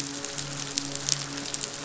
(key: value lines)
label: biophony, midshipman
recorder: SoundTrap 500